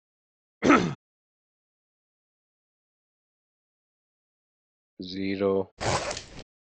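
At 0.61 seconds, someone coughs. At 4.98 seconds, a voice says "zero." Afterwards, at 5.77 seconds, the sound of a zipper can be heard.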